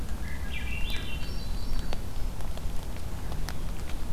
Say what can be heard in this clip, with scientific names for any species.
Catharus ustulatus, Catharus guttatus